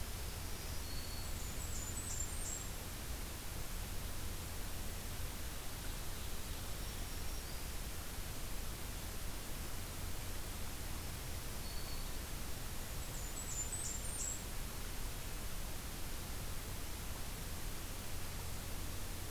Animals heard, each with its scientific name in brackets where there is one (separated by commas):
Black-throated Green Warbler (Setophaga virens), Blackburnian Warbler (Setophaga fusca), Ovenbird (Seiurus aurocapilla)